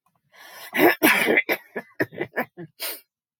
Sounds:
Throat clearing